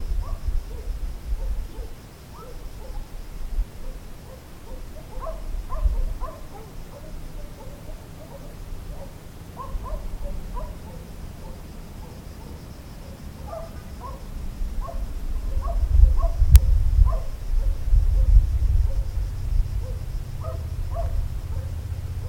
Is the dog far away?
yes